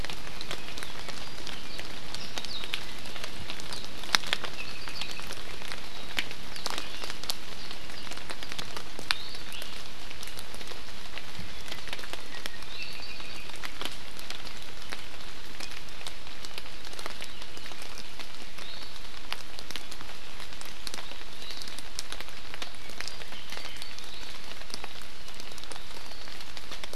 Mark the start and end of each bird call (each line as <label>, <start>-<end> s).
Apapane (Himatione sanguinea), 4.5-5.2 s
Iiwi (Drepanis coccinea), 9.1-9.5 s
Iiwi (Drepanis coccinea), 12.6-13.0 s
Apapane (Himatione sanguinea), 12.9-13.4 s